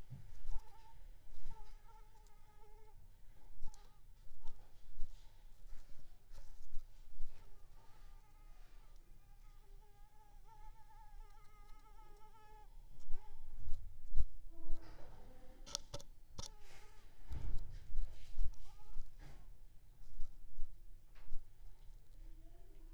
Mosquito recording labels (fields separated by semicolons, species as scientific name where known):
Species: Anopheles squamosus; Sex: female; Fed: unfed; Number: one; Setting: cup